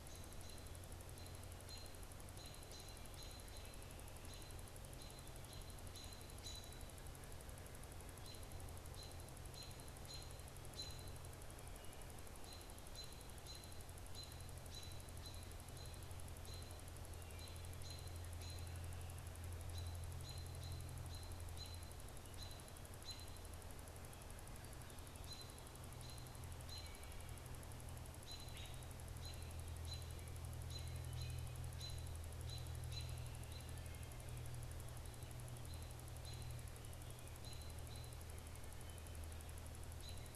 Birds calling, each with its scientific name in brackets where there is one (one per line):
American Robin (Turdus migratorius)